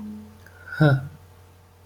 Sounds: Sigh